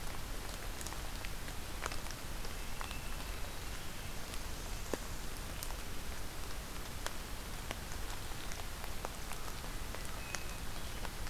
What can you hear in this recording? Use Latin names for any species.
Catharus guttatus